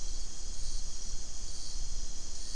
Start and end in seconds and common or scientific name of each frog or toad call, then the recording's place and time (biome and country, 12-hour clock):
none
Atlantic Forest, Brazil, 7:00pm